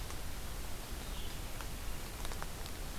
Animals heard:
forest ambience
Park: Marsh-Billings-Rockefeller National Historical Park